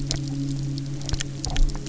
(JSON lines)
{"label": "anthrophony, boat engine", "recorder": "SoundTrap 300"}